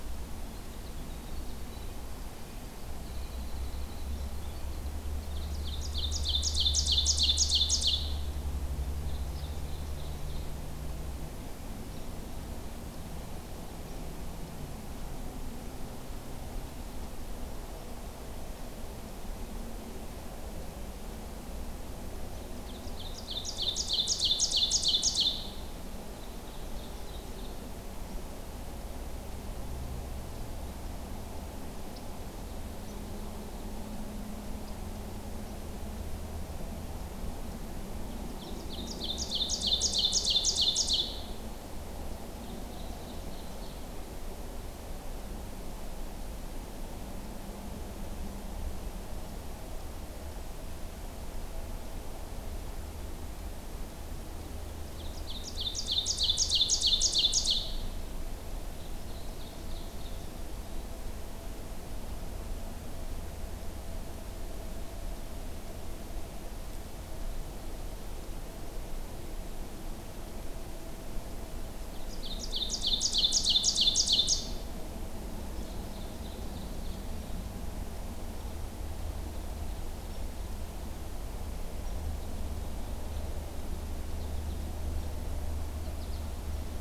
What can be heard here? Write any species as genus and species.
Troglodytes hiemalis, Seiurus aurocapilla, Spinus tristis